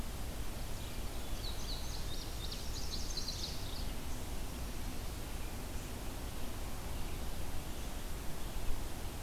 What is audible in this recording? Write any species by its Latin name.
Passerina cyanea, Setophaga pensylvanica, Geothlypis philadelphia